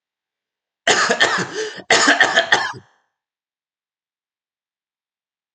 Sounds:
Cough